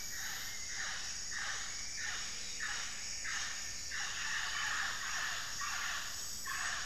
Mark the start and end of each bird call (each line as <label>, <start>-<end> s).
Plumbeous Pigeon (Patagioenas plumbea), 0.0-6.8 s
Plumbeous Antbird (Myrmelastes hyperythrus), 0.9-4.1 s
Hauxwell's Thrush (Turdus hauxwelli), 2.1-6.8 s